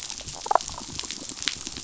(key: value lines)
label: biophony, damselfish
recorder: SoundTrap 500

label: biophony
recorder: SoundTrap 500